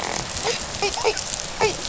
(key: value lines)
label: biophony, dolphin
recorder: SoundTrap 500